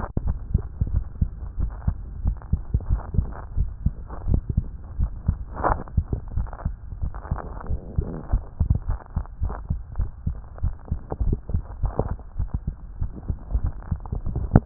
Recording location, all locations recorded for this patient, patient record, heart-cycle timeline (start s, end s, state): tricuspid valve (TV)
pulmonary valve (PV)+tricuspid valve (TV)+mitral valve (MV)
#Age: Child
#Sex: Male
#Height: 121.0 cm
#Weight: 24.2 kg
#Pregnancy status: False
#Murmur: Absent
#Murmur locations: nan
#Most audible location: nan
#Systolic murmur timing: nan
#Systolic murmur shape: nan
#Systolic murmur grading: nan
#Systolic murmur pitch: nan
#Systolic murmur quality: nan
#Diastolic murmur timing: nan
#Diastolic murmur shape: nan
#Diastolic murmur grading: nan
#Diastolic murmur pitch: nan
#Diastolic murmur quality: nan
#Outcome: Normal
#Campaign: 2014 screening campaign
0.00	0.90	unannotated
0.90	1.04	S1
1.04	1.20	systole
1.20	1.30	S2
1.30	1.58	diastole
1.58	1.72	S1
1.72	1.86	systole
1.86	1.96	S2
1.96	2.24	diastole
2.24	2.36	S1
2.36	2.52	systole
2.52	2.60	S2
2.60	2.90	diastole
2.90	3.02	S1
3.02	3.16	systole
3.16	3.28	S2
3.28	3.56	diastole
3.56	3.70	S1
3.70	3.84	systole
3.84	3.94	S2
3.94	4.28	diastole
4.28	4.42	S1
4.42	4.56	systole
4.56	4.64	S2
4.64	4.98	diastole
4.98	5.10	S1
5.10	5.26	systole
5.26	5.38	S2
5.38	5.66	diastole
5.66	5.80	S1
5.80	5.96	systole
5.96	6.06	S2
6.06	6.36	diastole
6.36	6.48	S1
6.48	6.64	systole
6.64	6.74	S2
6.74	7.02	diastole
7.02	7.12	S1
7.12	7.30	systole
7.30	7.40	S2
7.40	7.68	diastole
7.68	7.80	S1
7.80	7.96	systole
7.96	8.08	S2
8.08	8.32	diastole
8.32	14.66	unannotated